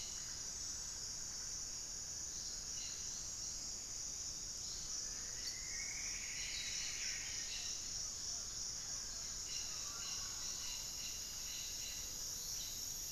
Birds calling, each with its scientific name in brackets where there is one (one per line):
Mealy Parrot (Amazona farinosa)
Hauxwell's Thrush (Turdus hauxwelli)
Cobalt-winged Parakeet (Brotogeris cyanoptera)
Ruddy Quail-Dove (Geotrygon montana)
unidentified bird
Black-faced Antthrush (Formicarius analis)
Plumbeous Antbird (Myrmelastes hyperythrus)